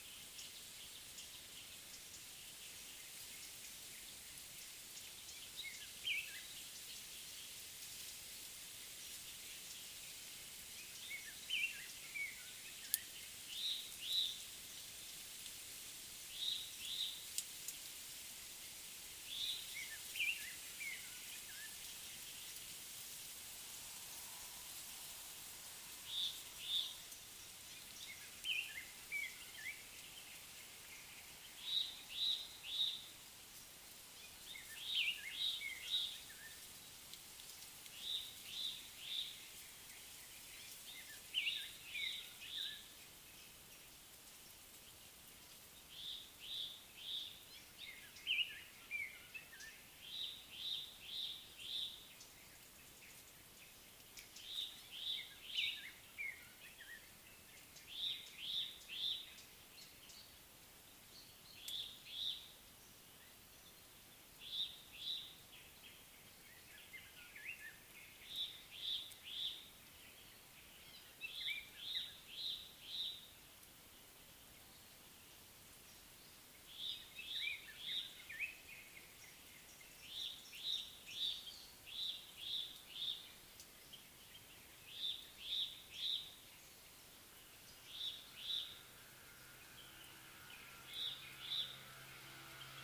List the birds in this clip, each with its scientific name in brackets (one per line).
Cape Robin-Chat (Cossypha caffra)
Black-collared Apalis (Oreolais pulcher)